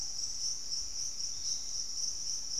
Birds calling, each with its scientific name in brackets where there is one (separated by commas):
Plumbeous Pigeon (Patagioenas plumbea), Piratic Flycatcher (Legatus leucophaius), Ruddy Pigeon (Patagioenas subvinacea), Hauxwell's Thrush (Turdus hauxwelli)